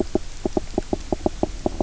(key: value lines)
label: biophony, knock croak
recorder: SoundTrap 300